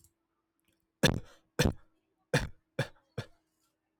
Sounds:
Cough